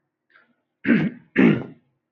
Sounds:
Throat clearing